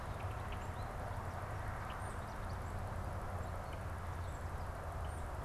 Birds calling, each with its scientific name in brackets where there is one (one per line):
unidentified bird
Tufted Titmouse (Baeolophus bicolor)